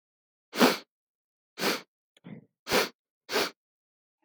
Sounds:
Sniff